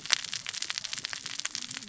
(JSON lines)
{"label": "biophony, cascading saw", "recorder": "SoundTrap 600 or HydroMoth"}